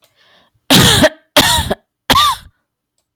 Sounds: Cough